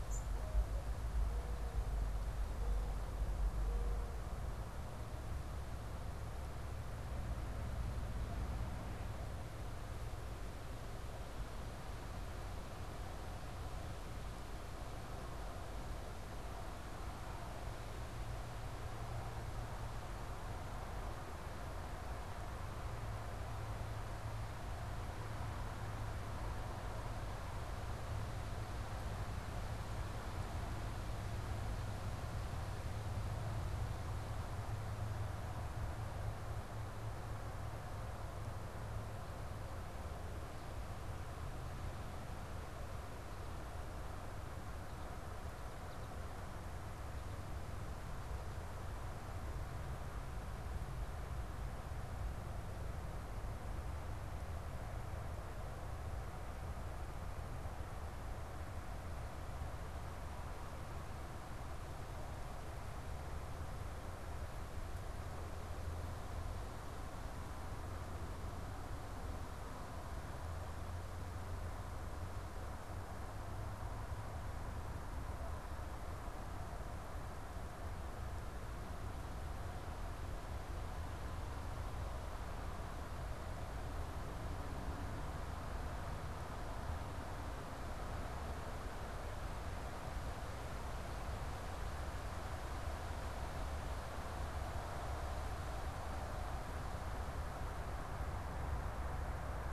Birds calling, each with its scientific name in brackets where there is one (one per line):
Mourning Dove (Zenaida macroura)
unidentified bird